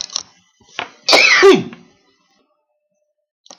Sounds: Sneeze